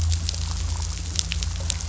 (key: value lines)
label: anthrophony, boat engine
recorder: SoundTrap 500